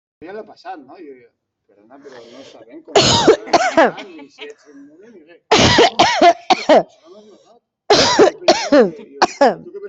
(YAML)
expert_labels:
- quality: poor
  cough_type: dry
  dyspnea: false
  wheezing: false
  stridor: false
  choking: false
  congestion: false
  nothing: true
  diagnosis: upper respiratory tract infection
  severity: unknown
age: 38
gender: female
respiratory_condition: false
fever_muscle_pain: false
status: symptomatic